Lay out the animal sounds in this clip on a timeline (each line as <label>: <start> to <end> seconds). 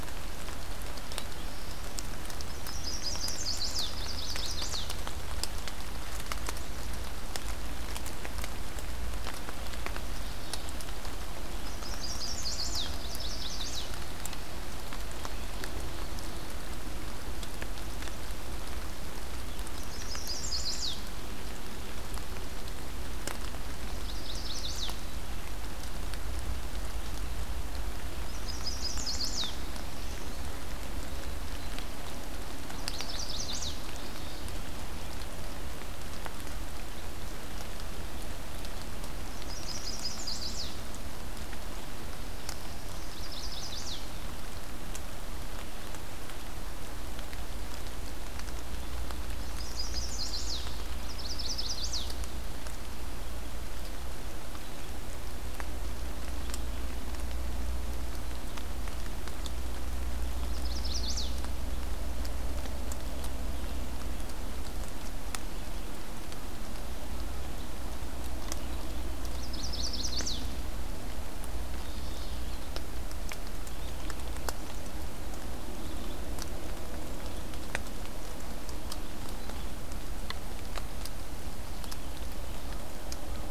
Black-throated Blue Warbler (Setophaga caerulescens): 0.8 to 2.3 seconds
Chestnut-sided Warbler (Setophaga pensylvanica): 2.4 to 4.9 seconds
Chestnut-sided Warbler (Setophaga pensylvanica): 11.5 to 14.0 seconds
Chestnut-sided Warbler (Setophaga pensylvanica): 19.5 to 21.1 seconds
Chestnut-sided Warbler (Setophaga pensylvanica): 23.7 to 25.1 seconds
Chestnut-sided Warbler (Setophaga pensylvanica): 27.9 to 29.8 seconds
Black-throated Blue Warbler (Setophaga caerulescens): 29.1 to 30.4 seconds
Chestnut-sided Warbler (Setophaga pensylvanica): 32.7 to 33.8 seconds
Chestnut-sided Warbler (Setophaga pensylvanica): 39.1 to 41.0 seconds
Black-throated Blue Warbler (Setophaga caerulescens): 41.7 to 43.2 seconds
Chestnut-sided Warbler (Setophaga pensylvanica): 42.9 to 44.3 seconds
Chestnut-sided Warbler (Setophaga pensylvanica): 49.4 to 50.7 seconds
Chestnut-sided Warbler (Setophaga pensylvanica): 51.0 to 52.1 seconds
Chestnut-sided Warbler (Setophaga pensylvanica): 60.3 to 61.6 seconds
Chestnut-sided Warbler (Setophaga pensylvanica): 69.1 to 70.6 seconds
Mourning Warbler (Geothlypis philadelphia): 71.5 to 72.7 seconds
Red-eyed Vireo (Vireo olivaceus): 73.6 to 83.5 seconds